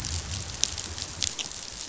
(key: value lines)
label: biophony
recorder: SoundTrap 500